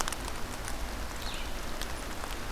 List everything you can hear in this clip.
Red-eyed Vireo